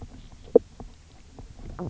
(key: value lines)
label: biophony, knock croak
recorder: SoundTrap 300